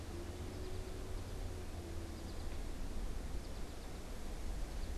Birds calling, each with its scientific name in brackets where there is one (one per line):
American Goldfinch (Spinus tristis)